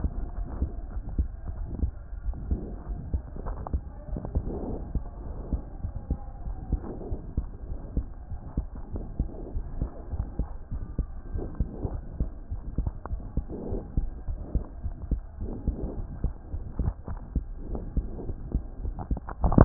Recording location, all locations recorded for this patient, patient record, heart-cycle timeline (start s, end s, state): aortic valve (AV)
aortic valve (AV)+pulmonary valve (PV)+tricuspid valve (TV)+mitral valve (MV)
#Age: Child
#Sex: Female
#Height: 121.0 cm
#Weight: 23.7 kg
#Pregnancy status: False
#Murmur: Present
#Murmur locations: aortic valve (AV)
#Most audible location: aortic valve (AV)
#Systolic murmur timing: Holosystolic
#Systolic murmur shape: Plateau
#Systolic murmur grading: I/VI
#Systolic murmur pitch: Low
#Systolic murmur quality: Blowing
#Diastolic murmur timing: nan
#Diastolic murmur shape: nan
#Diastolic murmur grading: nan
#Diastolic murmur pitch: nan
#Diastolic murmur quality: nan
#Outcome: Abnormal
#Campaign: 2015 screening campaign
0.00	0.72	unannotated
0.72	0.92	diastole
0.92	1.04	S1
1.04	1.16	systole
1.16	1.32	S2
1.32	1.56	diastole
1.56	1.68	S1
1.68	1.80	systole
1.80	1.96	S2
1.96	2.24	diastole
2.24	2.36	S1
2.36	2.48	systole
2.48	2.64	S2
2.64	2.88	diastole
2.88	3.00	S1
3.00	3.10	systole
3.10	3.22	S2
3.22	3.44	diastole
3.44	3.58	S1
3.58	3.72	systole
3.72	3.84	S2
3.84	4.12	diastole
4.12	4.20	S1
4.20	4.32	systole
4.32	4.44	S2
4.44	4.64	diastole
4.64	4.78	S1
4.78	4.90	systole
4.90	5.02	S2
5.02	5.24	diastole
5.24	5.38	S1
5.38	5.50	systole
5.50	5.62	S2
5.62	5.84	diastole
5.84	5.94	S1
5.94	6.08	systole
6.08	6.18	S2
6.18	6.44	diastole
6.44	6.58	S1
6.58	6.72	systole
6.72	6.84	S2
6.84	7.06	diastole
7.06	7.20	S1
7.20	7.38	systole
7.38	7.50	S2
7.50	7.72	diastole
7.72	7.84	S1
7.84	7.96	systole
7.96	8.08	S2
8.08	8.29	diastole
8.29	8.40	S1
8.40	8.54	systole
8.54	8.68	S2
8.68	8.94	diastole
8.94	9.06	S1
9.06	9.18	systole
9.18	9.30	S2
9.30	9.54	diastole
9.54	9.66	S1
9.66	9.80	systole
9.80	9.90	S2
9.90	10.12	diastole
10.12	10.26	S1
10.26	10.38	systole
10.38	10.50	S2
10.50	10.72	diastole
10.72	10.82	S1
10.82	10.96	systole
10.96	11.10	S2
11.10	11.32	diastole
11.32	11.46	S1
11.46	11.56	systole
11.56	11.70	S2
11.70	11.92	diastole
11.92	12.04	S1
12.04	12.16	systole
12.16	12.32	S2
12.32	12.52	diastole
12.52	12.62	S1
12.62	12.74	systole
12.74	12.88	S2
12.88	13.12	diastole
13.12	13.24	S1
13.24	13.36	systole
13.36	13.48	S2
13.48	13.72	diastole
13.72	13.82	S1
13.82	13.96	systole
13.96	14.10	S2
14.10	14.28	diastole
14.28	14.40	S1
14.40	14.52	systole
14.52	14.66	S2
14.66	14.84	diastole
14.84	14.96	S1
14.96	15.10	systole
15.10	15.24	S2
15.24	15.42	diastole
15.42	15.50	S1
15.50	15.66	systole
15.66	15.78	S2
15.78	15.98	diastole
15.98	16.08	S1
16.08	16.22	systole
16.22	16.36	S2
16.36	16.54	diastole
16.54	16.64	S1
16.64	16.78	systole
16.78	16.92	S2
16.92	17.12	diastole
17.12	17.20	S1
17.20	17.32	systole
17.32	17.48	S2
17.48	17.70	diastole
17.70	17.84	S1
17.84	17.96	systole
17.96	18.08	S2
18.08	18.28	diastole
18.28	18.36	S1
18.36	18.52	systole
18.52	18.66	S2
18.66	18.84	diastole
18.84	18.96	S1
18.96	19.12	systole
19.12	19.24	S2
19.24	19.42	diastole
19.42	19.65	unannotated